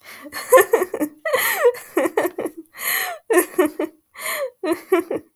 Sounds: Laughter